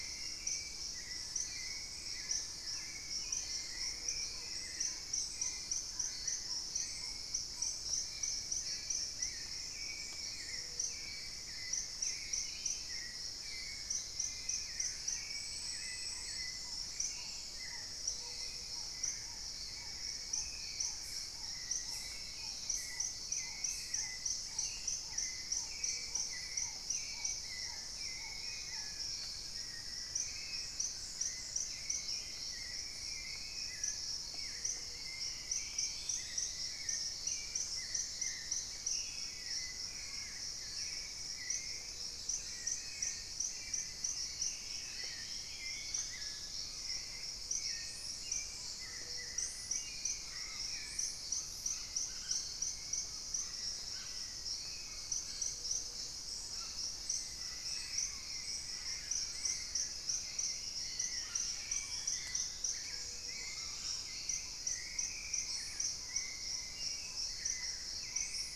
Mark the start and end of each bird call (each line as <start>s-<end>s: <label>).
0.0s-68.6s: Hauxwell's Thrush (Turdus hauxwelli)
0.6s-8.1s: Black-tailed Trogon (Trogon melanurus)
2.1s-4.7s: unidentified bird
5.8s-6.7s: unidentified bird
9.2s-11.2s: Plain-winged Antshrike (Thamnophilus schistaceus)
10.4s-11.2s: Gray-fronted Dove (Leptotila rufaxilla)
11.5s-13.3s: unidentified bird
15.5s-29.0s: Black-tailed Trogon (Trogon melanurus)
17.9s-18.6s: Gray-fronted Dove (Leptotila rufaxilla)
21.3s-23.0s: unidentified bird
25.7s-26.5s: Gray-fronted Dove (Leptotila rufaxilla)
34.0s-36.9s: Dusky-throated Antshrike (Thamnomanes ardesiacus)
34.5s-35.3s: Gray-fronted Dove (Leptotila rufaxilla)
36.3s-37.4s: Plumbeous Pigeon (Patagioenas plumbea)
41.5s-42.3s: Gray-fronted Dove (Leptotila rufaxilla)
41.6s-42.5s: unidentified bird
42.7s-47.1s: Dusky-throated Antshrike (Thamnomanes ardesiacus)
47.7s-68.6s: Paradise Tanager (Tangara chilensis)
48.6s-64.3s: Red-bellied Macaw (Orthopsittaca manilatus)
48.8s-49.5s: Gray-fronted Dove (Leptotila rufaxilla)
55.4s-56.2s: Gray-fronted Dove (Leptotila rufaxilla)
59.0s-62.7s: Dusky-throated Antshrike (Thamnomanes ardesiacus)
62.6s-63.6s: Gray-fronted Dove (Leptotila rufaxilla)
63.7s-68.6s: Black-tailed Trogon (Trogon melanurus)